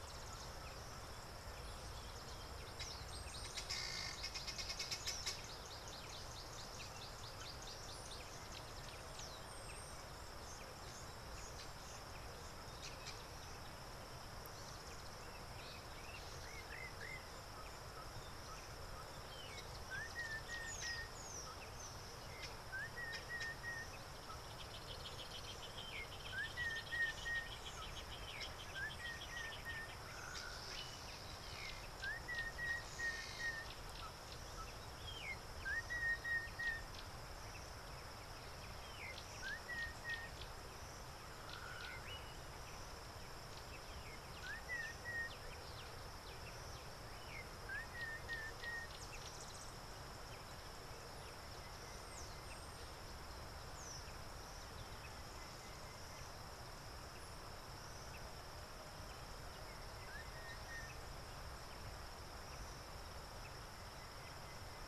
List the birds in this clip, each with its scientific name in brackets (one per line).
Northern Brownbul (Phyllastrephus strepitans)
Helmeted Guineafowl (Numida meleagris)